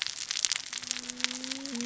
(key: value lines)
label: biophony, cascading saw
recorder: SoundTrap 600 or HydroMoth